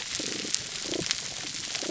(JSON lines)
{"label": "biophony, damselfish", "recorder": "SoundTrap 300"}